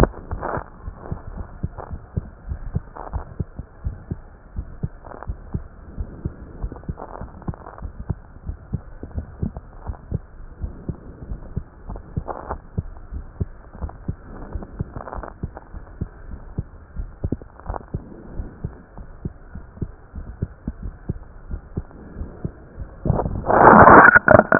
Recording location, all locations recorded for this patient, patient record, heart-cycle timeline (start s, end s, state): aortic valve (AV)
aortic valve (AV)+pulmonary valve (PV)+tricuspid valve (TV)+mitral valve (MV)
#Age: nan
#Sex: Female
#Height: nan
#Weight: nan
#Pregnancy status: True
#Murmur: Absent
#Murmur locations: nan
#Most audible location: nan
#Systolic murmur timing: nan
#Systolic murmur shape: nan
#Systolic murmur grading: nan
#Systolic murmur pitch: nan
#Systolic murmur quality: nan
#Diastolic murmur timing: nan
#Diastolic murmur shape: nan
#Diastolic murmur grading: nan
#Diastolic murmur pitch: nan
#Diastolic murmur quality: nan
#Outcome: Normal
#Campaign: 2015 screening campaign
0.00	2.24	unannotated
2.24	2.44	diastole
2.44	2.60	S1
2.60	2.72	systole
2.72	2.84	S2
2.84	3.14	diastole
3.14	3.28	S1
3.28	3.38	systole
3.38	3.48	S2
3.48	3.82	diastole
3.82	4.00	S1
4.00	4.10	systole
4.10	4.20	S2
4.20	4.54	diastole
4.54	4.68	S1
4.68	4.82	systole
4.82	4.92	S2
4.92	5.24	diastole
5.24	5.38	S1
5.38	5.50	systole
5.50	5.64	S2
5.64	5.96	diastole
5.96	6.10	S1
6.10	6.22	systole
6.22	6.34	S2
6.34	6.62	diastole
6.62	6.76	S1
6.76	6.86	systole
6.86	6.96	S2
6.96	7.28	diastole
7.28	7.36	S1
7.36	7.46	systole
7.46	7.56	S2
7.56	7.84	diastole
7.84	7.94	S1
7.94	8.08	systole
8.08	8.20	S2
8.20	8.48	diastole
8.48	8.58	S1
8.58	8.72	systole
8.72	8.82	S2
8.82	9.14	diastole
9.14	9.30	S1
9.30	9.40	systole
9.40	9.54	S2
9.54	9.84	diastole
9.84	9.98	S1
9.98	10.08	systole
10.08	10.22	S2
10.22	10.60	diastole
10.60	10.74	S1
10.74	10.84	systole
10.84	10.96	S2
10.96	11.30	diastole
11.30	11.42	S1
11.42	11.52	systole
11.52	11.62	S2
11.62	11.88	diastole
11.88	12.02	S1
12.02	12.14	systole
12.14	12.24	S2
12.24	12.50	diastole
12.50	12.62	S1
12.62	12.74	systole
12.74	12.86	S2
12.86	13.12	diastole
13.12	13.26	S1
13.26	13.38	systole
13.38	13.48	S2
13.48	13.80	diastole
13.80	13.94	S1
13.94	14.06	systole
14.06	14.16	S2
14.16	14.48	diastole
14.48	14.62	S1
14.62	14.74	systole
14.74	14.88	S2
14.88	15.16	diastole
15.16	15.28	S1
15.28	15.40	systole
15.40	15.50	S2
15.50	15.70	diastole
15.70	15.86	S1
15.86	15.95	systole
15.95	16.08	S2
16.08	16.28	diastole
16.28	16.40	S1
16.40	16.56	systole
16.56	16.66	S2
16.66	16.96	diastole
16.96	17.10	S1
17.10	17.22	systole
17.22	17.32	S2
17.32	17.66	diastole
17.66	17.80	S1
17.80	17.92	systole
17.92	18.06	S2
18.06	18.36	diastole
18.36	18.50	S1
18.50	18.62	systole
18.62	18.72	S2
18.72	18.95	diastole
18.95	19.06	S1
19.06	19.18	systole
19.18	19.30	S2
19.30	19.52	diastole
19.52	19.64	S1
19.64	19.78	systole
19.78	19.90	S2
19.90	20.15	diastole
20.15	20.29	S1
20.29	20.38	systole
20.38	20.50	S2
20.50	20.82	diastole
20.82	20.96	S1
20.96	21.08	systole
21.08	21.22	S2
21.22	21.50	diastole
21.50	21.60	S1
21.60	21.74	systole
21.74	21.86	S2
21.86	22.18	diastole
22.18	22.32	S1
22.32	22.44	systole
22.44	22.60	S2
22.60	22.78	diastole
22.78	24.59	unannotated